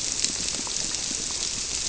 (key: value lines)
label: biophony
recorder: SoundTrap 300